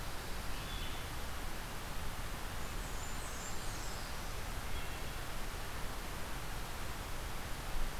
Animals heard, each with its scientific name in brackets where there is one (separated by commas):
Wood Thrush (Hylocichla mustelina), Blackburnian Warbler (Setophaga fusca), Black-throated Blue Warbler (Setophaga caerulescens)